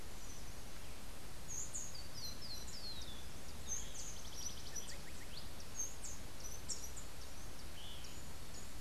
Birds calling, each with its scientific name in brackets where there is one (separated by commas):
Rufous-collared Sparrow (Zonotrichia capensis), Rufous-tailed Hummingbird (Amazilia tzacatl)